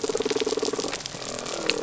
{"label": "biophony", "recorder": "SoundTrap 300"}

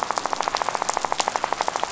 {"label": "biophony, rattle", "recorder": "SoundTrap 500"}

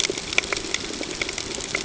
{"label": "ambient", "recorder": "HydroMoth"}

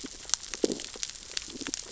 {"label": "biophony, stridulation", "recorder": "SoundTrap 600 or HydroMoth"}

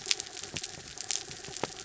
{"label": "anthrophony, mechanical", "recorder": "SoundTrap 300"}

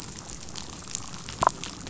{"label": "biophony, damselfish", "recorder": "SoundTrap 500"}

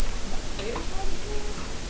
{"label": "biophony", "recorder": "SoundTrap 300"}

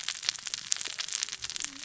{"label": "biophony, cascading saw", "recorder": "SoundTrap 600 or HydroMoth"}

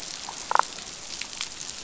{"label": "biophony, damselfish", "recorder": "SoundTrap 500"}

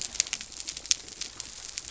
{"label": "biophony", "recorder": "SoundTrap 300"}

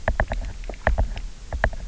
{"label": "biophony, knock", "recorder": "SoundTrap 300"}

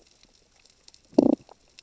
{"label": "biophony, damselfish", "recorder": "SoundTrap 600 or HydroMoth"}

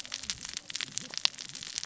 {"label": "biophony, cascading saw", "recorder": "SoundTrap 600 or HydroMoth"}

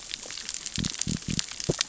{"label": "biophony", "recorder": "SoundTrap 600 or HydroMoth"}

